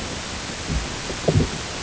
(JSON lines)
{"label": "ambient", "recorder": "HydroMoth"}